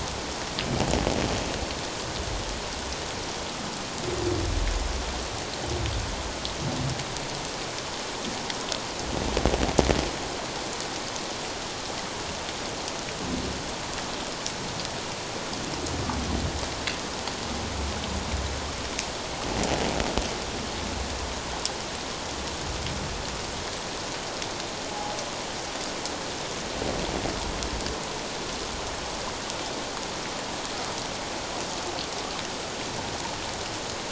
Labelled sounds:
24.9	25.2	humpback whale, 0.78 to 0.88 kHz

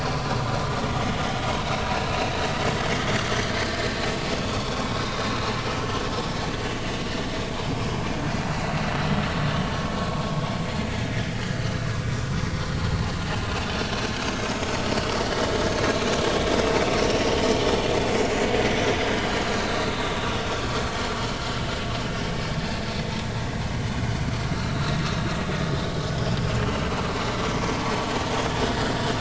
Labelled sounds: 1.6	2.4	vessel noise, 2.6 to 4.0 kHz
3.7	4.0	vessel noise, 4.0 to 4.2 kHz
4.5	4.9	vessel noise, 0.99 to 3.6 kHz
6.5	6.8	vessel noise, 2.6 to 2.8 kHz
7.8	8.1	vessel noise, 4.9 to 5.1 kHz
10.9	11.9	vessel noise, 1.6 to 4.0 kHz
13.2	13.5	vessel noise, 2.7 to 3.1 kHz
17.0	17.3	vessel noise, 5.3 to 5.7 kHz
18.2	18.5	vessel noise, 6.8 to 7.1 kHz
19.9	20.2	vessel noise, 3.5 to 3.8 kHz
24.7	25.0	vessel noise, 3.7 to 4.1 kHz
26.6	26.9	vessel noise, 2.8 to 3.1 kHz

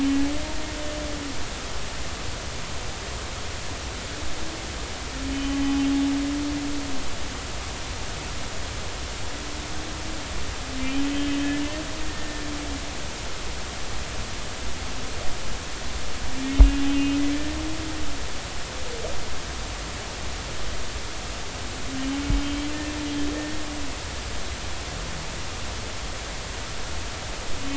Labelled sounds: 6.3	6.6	humpback whale, 2.8 to 3.1 kHz
10.8	11.4	humpback whale, 2.3 to 3.2 kHz
12.1	12.4	humpback whale, 1.8 to 1.9 kHz
16.8	17.2	humpback whale, 2.5 to 2.9 kHz
18.3	18.6	humpback whale, 1.7 to 1.9 kHz
22.4	22.7	humpback whale, 3.1 to 3.3 kHz

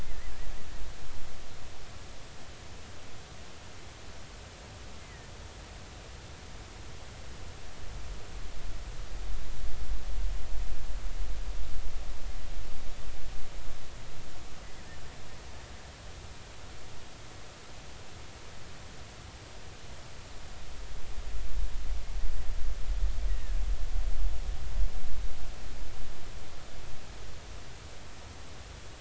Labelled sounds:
0.0	0.3	killer whale, 1.7 to 2.1 kHz
5.0	5.3	killer whale, 1.7 to 2.1 kHz
24.3	24.6	killer whale, 1.6 to 2.0 kHz

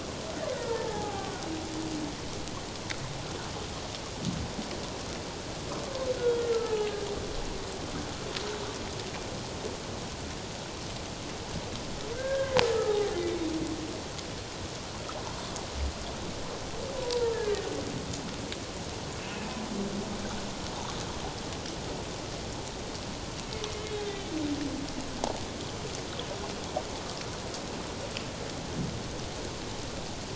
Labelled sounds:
0.8	1.3	humpback whale, 0.78 to 0.97 kHz
6.2	7.0	humpback whale, 0.78 to 1.5 kHz
12.1	13.2	humpback whale, 0.78 to 1.7 kHz
17.0	17.3	humpback whale, 0.88 to 1.0 kHz
19.2	19.6	humpback whale, 2.4 to 2.7 kHz
23.9	24.3	humpback whale, 3.0 to 3.7 kHz

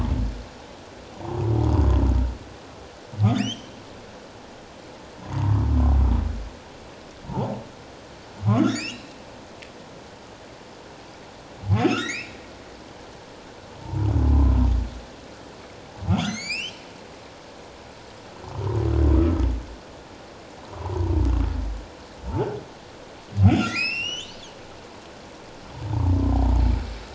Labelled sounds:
3.3	3.7	humpback whale, 2.1 to 6.5 kHz
5.2	5.5	humpback whale, 0.88 to 1.1 kHz
8.5	9.1	humpback whale, 0.94 to 5.5 kHz
11.8	12.4	humpback whale, 1.2 to 5.5 kHz
13.8	14.6	humpback whale, 0.84 to 1.1 kHz
16.2	16.8	humpback whale, 1.8 to 8.0 kHz
19.2	19.5	humpback whale, 1.2 to 1.3 kHz
20.7	21.1	humpback whale, 0.78 to 1.2 kHz
22.3	22.5	humpback whale, 0.78 to 0.97 kHz
23.5	24.4	humpback whale, 1.8 to 7.9 kHz
25.9	26.1	humpback whale, 0.84 to 1.2 kHz

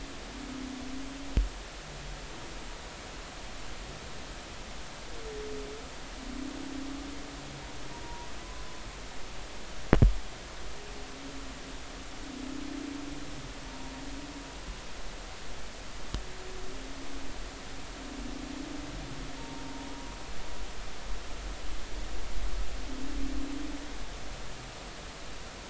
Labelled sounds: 8.0	8.3	humpback whale, 0.90 to 0.99 kHz
13.7	13.9	humpback whale, 0.86 to 0.99 kHz
19.4	19.6	humpback whale, 0.90 to 0.96 kHz

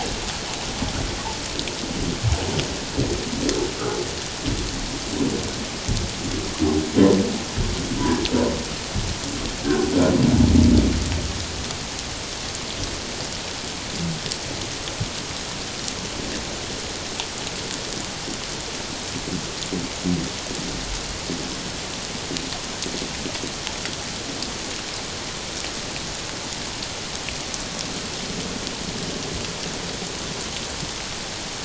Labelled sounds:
9.6	9.9	humpback whale, 1.4 to 1.7 kHz

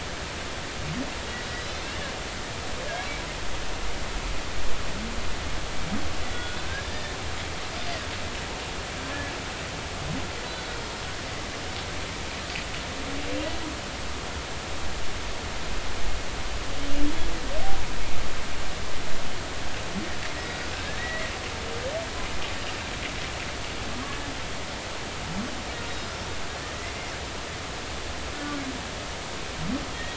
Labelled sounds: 1.6	2.1	humpback whale, 2.6 to 5.2 kHz
2.9	3.2	humpback whale, 2.1 to 2.3 kHz
6.3	7.2	humpback whale, 1.4 to 3.5 kHz
7.8	8.0	humpback whale, 4.7 to 5.1 kHz
20.4	21.3	humpback whale, 1.5 to 4.9 kHz
28.3	28.6	humpback whale, 1.4 to 1.5 kHz
29.9	30.1	humpback whale, 3.2 to 3.4 kHz

